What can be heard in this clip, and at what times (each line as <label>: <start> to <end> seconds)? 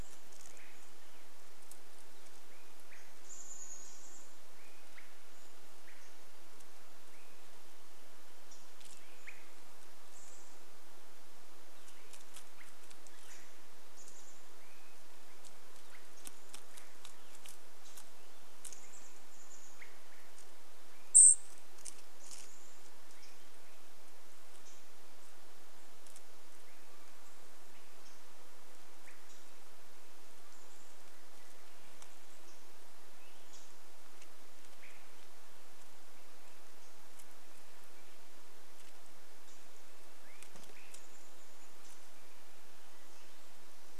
Wrentit song: 0 to 2 seconds
Swainson's Thrush call: 0 to 10 seconds
Chestnut-backed Chickadee call: 2 to 6 seconds
Wrentit song: 4 to 8 seconds
unidentified bird chip note: 8 to 10 seconds
Chestnut-backed Chickadee call: 10 to 12 seconds
Northern Flicker call: 10 to 14 seconds
unidentified bird chip note: 12 to 14 seconds
Swainson's Thrush call: 12 to 16 seconds
Chestnut-backed Chickadee call: 14 to 16 seconds
Northern Flicker call: 16 to 18 seconds
Chestnut-backed Chickadee call: 18 to 20 seconds
Swainson's Thrush call: 18 to 24 seconds
Cedar Waxwing call: 20 to 22 seconds
Chestnut-backed Chickadee call: 22 to 24 seconds
unidentified bird chip note: 22 to 26 seconds
Swainson's Thrush call: 26 to 30 seconds
unidentified bird chip note: 28 to 30 seconds
Chestnut-backed Chickadee call: 30 to 32 seconds
unidentified bird chip note: 32 to 34 seconds
Swainson's Thrush call: 32 to 36 seconds
unidentified bird chip note: 36 to 40 seconds
Swainson's Thrush call: 40 to 42 seconds
Hermit Thrush song: 42 to 44 seconds